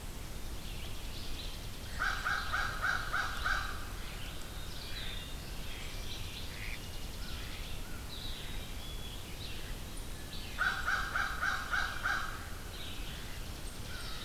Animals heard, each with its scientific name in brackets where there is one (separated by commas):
Mallard (Anas platyrhynchos), American Crow (Corvus brachyrhynchos), Chipping Sparrow (Spizella passerina), Red-eyed Vireo (Vireo olivaceus), Black-capped Chickadee (Poecile atricapillus)